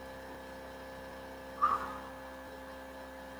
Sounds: Sigh